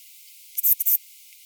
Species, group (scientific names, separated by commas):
Ephippiger ephippiger, Orthoptera